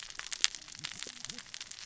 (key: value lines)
label: biophony, cascading saw
recorder: SoundTrap 600 or HydroMoth